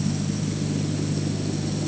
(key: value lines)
label: anthrophony, boat engine
recorder: HydroMoth